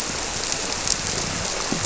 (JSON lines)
{"label": "biophony", "recorder": "SoundTrap 300"}